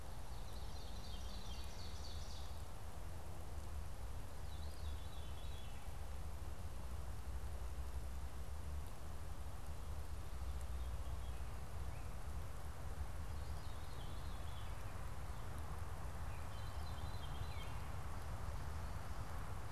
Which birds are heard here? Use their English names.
Ovenbird, Veery